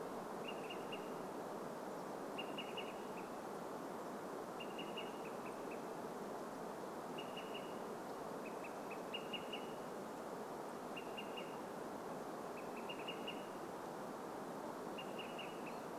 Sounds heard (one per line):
Olive-sided Flycatcher call
unidentified sound